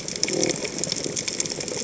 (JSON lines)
{"label": "biophony", "recorder": "HydroMoth"}